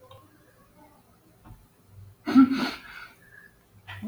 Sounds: Sigh